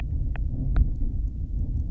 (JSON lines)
{"label": "biophony", "recorder": "SoundTrap 300"}